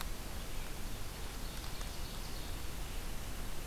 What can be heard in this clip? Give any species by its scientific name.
Vireo olivaceus, Seiurus aurocapilla